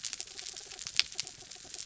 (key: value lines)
label: anthrophony, mechanical
recorder: SoundTrap 300